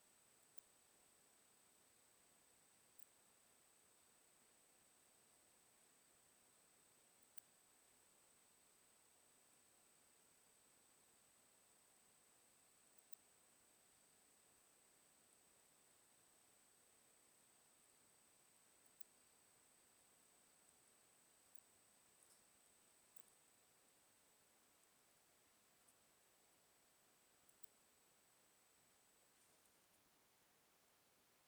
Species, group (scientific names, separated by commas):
Poecilimon hamatus, Orthoptera